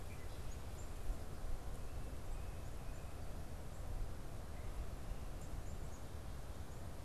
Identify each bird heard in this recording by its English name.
Red-winged Blackbird, Black-capped Chickadee